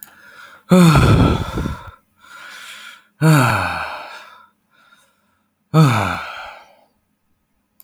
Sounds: Sigh